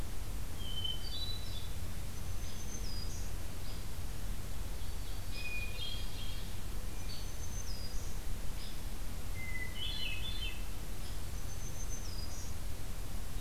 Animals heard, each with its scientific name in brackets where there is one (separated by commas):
Hairy Woodpecker (Dryobates villosus), Ovenbird (Seiurus aurocapilla), Hermit Thrush (Catharus guttatus), Black-throated Green Warbler (Setophaga virens)